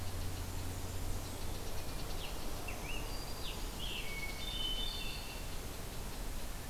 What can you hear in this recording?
unknown mammal, Scarlet Tanager, Black-throated Green Warbler, Hermit Thrush